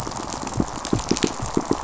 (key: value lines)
label: biophony, pulse
recorder: SoundTrap 500